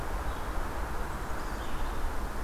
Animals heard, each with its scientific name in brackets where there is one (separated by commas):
Red-eyed Vireo (Vireo olivaceus), Black-capped Chickadee (Poecile atricapillus)